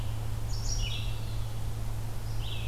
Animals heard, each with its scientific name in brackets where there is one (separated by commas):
Red-eyed Vireo (Vireo olivaceus)